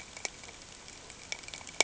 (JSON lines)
{"label": "ambient", "recorder": "HydroMoth"}